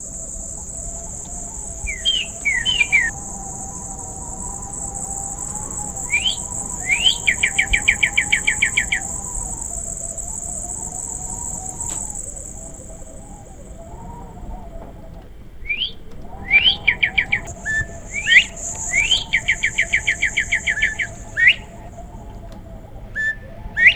What animal is making noise?
bird